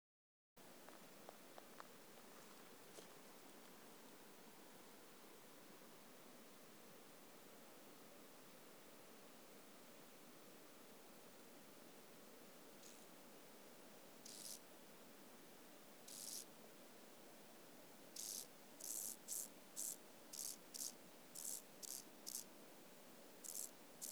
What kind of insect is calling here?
orthopteran